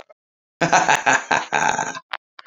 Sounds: Laughter